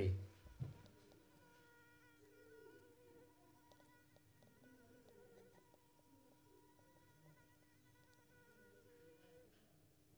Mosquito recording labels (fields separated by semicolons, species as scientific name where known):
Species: Anopheles squamosus; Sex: female; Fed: unfed; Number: one; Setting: cup